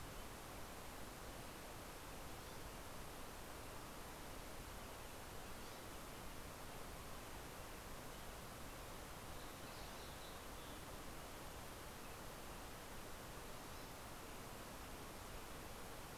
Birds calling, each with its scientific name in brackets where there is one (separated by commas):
Green-tailed Towhee (Pipilo chlorurus)